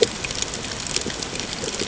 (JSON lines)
{"label": "ambient", "recorder": "HydroMoth"}